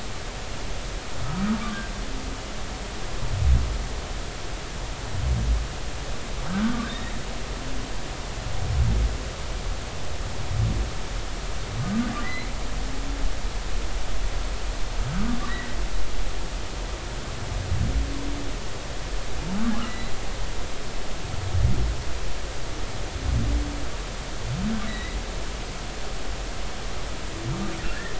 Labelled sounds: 1.5	1.8	humpback whale, 1.1 to 1.3 kHz
6.5	6.9	humpback whale, 1.1 to 1.6 kHz
12.2	12.5	humpback whale, 1.8 to 2.2 kHz
15.5	15.8	humpback whale, 1.8 to 2.0 kHz
24.9	25.2	humpback whale, 1.9 to 4.0 kHz

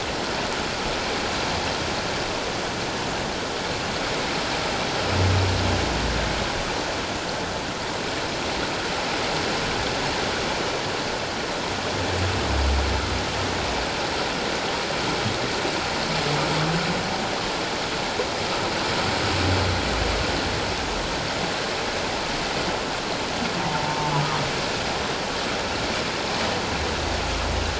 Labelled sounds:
23.6	24.2	humpback whale, 0.78 to 1.0 kHz

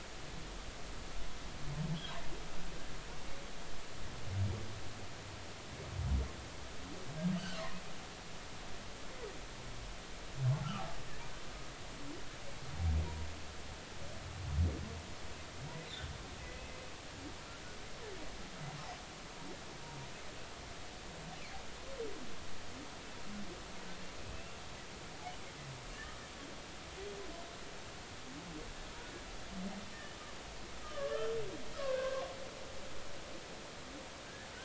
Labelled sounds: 7.3	7.6	humpback whale, 2.7 to 3.1 kHz
10.6	10.9	humpback whale, 1.1 to 1.6 kHz
24.3	24.6	humpback whale, 2.6 to 2.8 kHz
29.9	30.2	humpback whale, 1.7 to 1.9 kHz
30.8	31.3	humpback whale, 1.1 to 1.4 kHz
31.8	32.3	humpback whale, 0.99 to 2.8 kHz

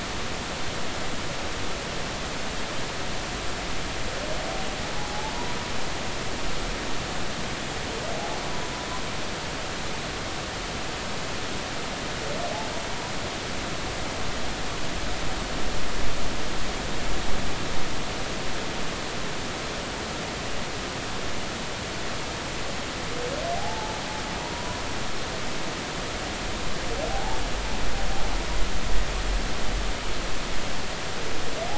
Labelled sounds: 5.0	5.5	humpback whale, 0.80 to 1.1 kHz
23.5	24.0	humpback whale, 0.80 to 0.93 kHz
24.5	24.8	humpback whale, 0.93 to 1.1 kHz
27.1	27.4	humpback whale, 0.80 to 0.96 kHz

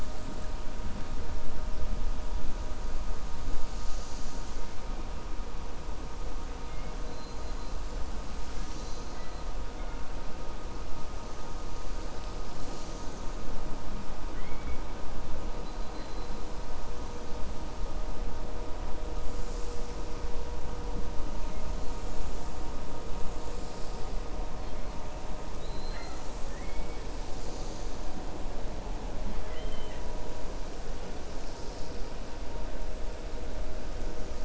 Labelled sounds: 14.2	14.8	killer whale, 1.5 to 3.3 kHz
25.5	27.0	killer whale, 0.69 to 4.2 kHz
29.3	30.0	killer whale, 1.0 to 3.4 kHz

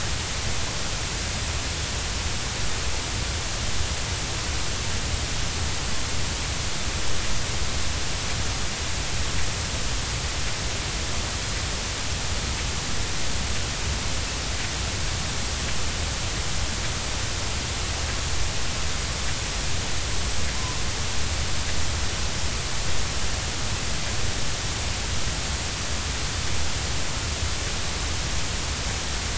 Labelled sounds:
20.5	20.8	killer whale, Bigg's (transient), 0.86 to 1.1 kHz

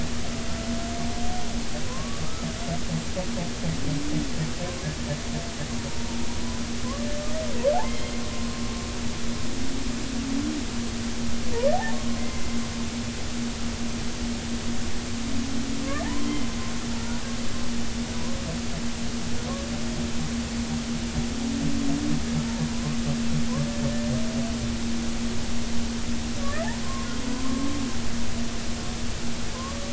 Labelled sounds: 1.9	2.2	humpback whale, 0.96 to 1.2 kHz
7.8	8.1	humpback whale, 2.0 to 3.3 kHz
16.0	16.4	humpback whale, 0.80 to 3.2 kHz
22.7	23.0	humpback whale, 0.93 to 1.3 kHz
26.4	26.7	humpback whale, 1.1 to 2.0 kHz
27.3	28.1	humpback whale, 0.96 to 1.2 kHz

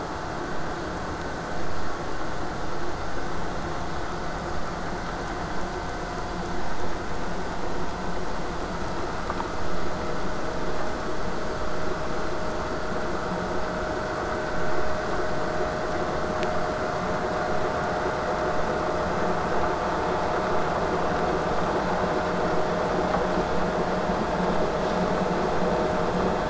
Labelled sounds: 21.5	26.4	vessel noise, 0 to 8.0 kHz

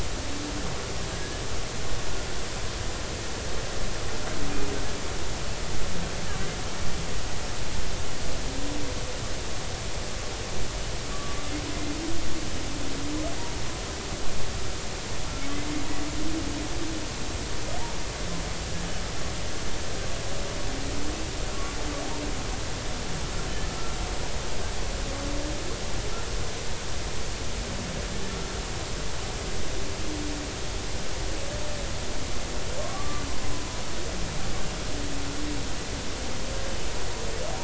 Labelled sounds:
1.1	1.4	humpback whale, 1.6 to 1.8 kHz
11.1	11.4	humpback whale, 1.1 to 1.2 kHz
32.8	33.2	humpback whale, 1.0 to 1.2 kHz

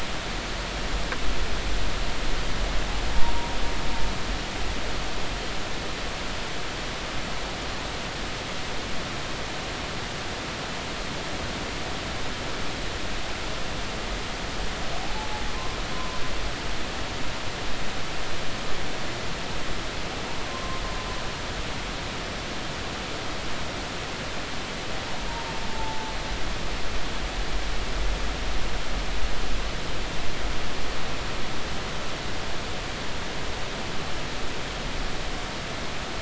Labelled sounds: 15.5	16.2	humpback whale, 0.99 to 1.1 kHz
20.5	20.8	humpback whale, 0.99 to 1.1 kHz
25.7	26.1	humpback whale, 0.83 to 0.93 kHz

